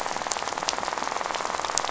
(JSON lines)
{"label": "biophony, rattle", "recorder": "SoundTrap 500"}